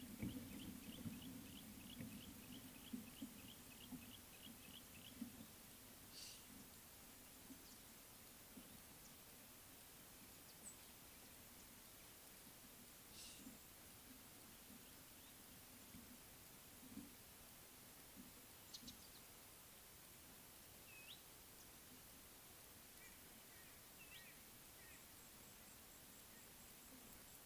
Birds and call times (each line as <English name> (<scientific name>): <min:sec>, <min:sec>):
Yellow-breasted Apalis (Apalis flavida): 0:03.1
Red-backed Scrub-Robin (Cercotrichas leucophrys): 0:21.0